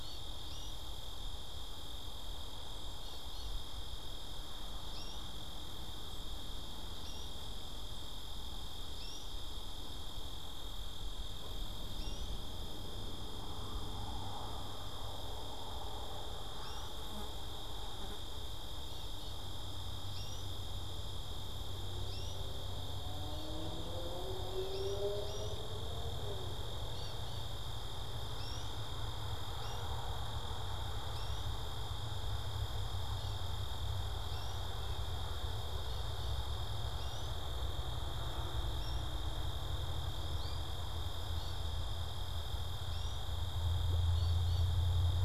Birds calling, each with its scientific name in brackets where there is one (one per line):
American Goldfinch (Spinus tristis)